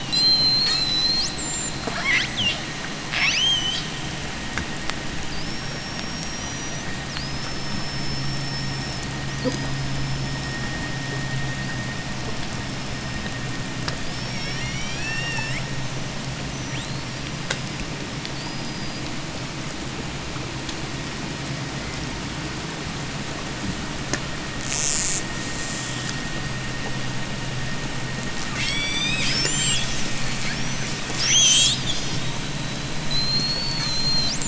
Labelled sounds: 0.0	2.7	killer whale, J pod, 0.28 to 8.0 kHz
3.0	4.0	killer whale, J pod, 0.43 to 8.0 kHz
5.2	13.6	killer whale, J pod, 3.9 to 6.8 kHz
5.2	9.3	vessel noise, 0 to 2.1 kHz
13.9	15.7	killer whale, J pod, 1.2 to 8.0 kHz
16.3	19.2	killer whale, J pod, 1.4 to 8.0 kHz
24.5	25.5	killer whale, J pod, 2.0 to 8.0 kHz
28.4	34.4	killer whale, J pod, 1.1 to 8.0 kHz

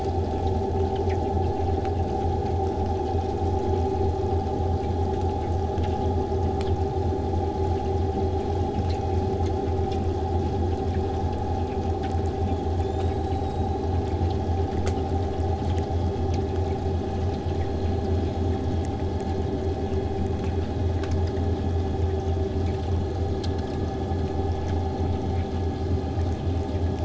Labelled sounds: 12.5	14.8	killer whale, southern resident, 3.0 to 8.0 kHz

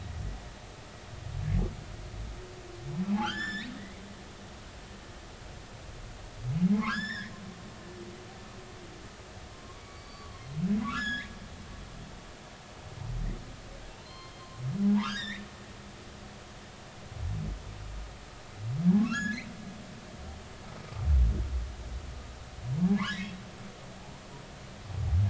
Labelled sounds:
3.2	4.7	humpback whale, 1.0 to 7.3 kHz
6.7	7.3	humpback whale, 0.83 to 7.3 kHz
9.5	11.3	humpback whale, 0.93 to 6.9 kHz
14.0	15.5	humpback whale, 0.80 to 5.1 kHz
19.0	19.4	humpback whale, 1.0 to 1.8 kHz
23.0	23.3	humpback whale, 1.3 to 2.0 kHz

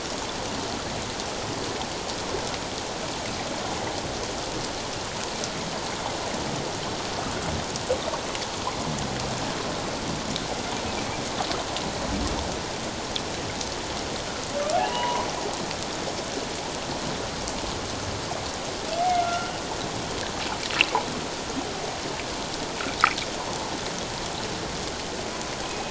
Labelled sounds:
14.9	15.3	humpback whale, 0.81 to 1.2 kHz
19.1	19.6	humpback whale, 1.3 to 1.5 kHz
25.7	25.9	humpback whale, 2.4 to 2.6 kHz

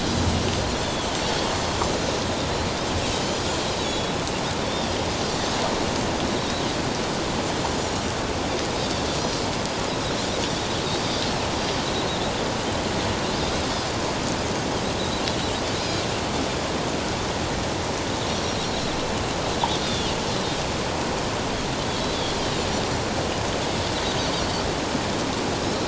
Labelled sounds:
3.1	3.4	Pacific white-sided dolphin, 3.0 to 3.2 kHz
3.8	4.1	Pacific white-sided dolphin, 3.3 to 3.6 kHz
15.8	16.0	Pacific white-sided dolphin, 4.7 to 5.1 kHz
19.8	20.1	Pacific white-sided dolphin, 3.2 to 3.8 kHz

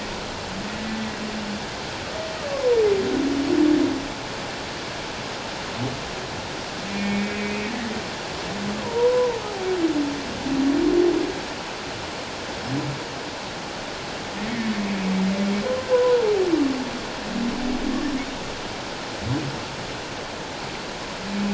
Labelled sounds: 2.5	2.8	humpback whale, 0.91 to 1.2 kHz
6.9	7.7	humpback whale, 2.2 to 2.6 kHz
8.8	9.4	humpback whale, 0.84 to 1.1 kHz
15.9	16.2	humpback whale, 0.94 to 1.1 kHz

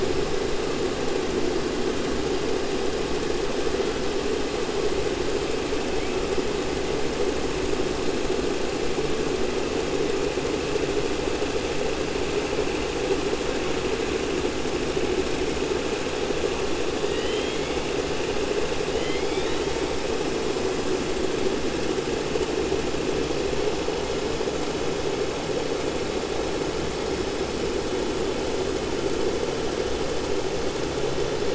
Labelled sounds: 17.0	17.8	killer whale, 1.9 to 4.3 kHz
18.9	19.7	killer whale, 1.9 to 4.6 kHz

